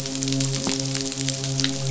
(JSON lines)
{"label": "biophony, midshipman", "recorder": "SoundTrap 500"}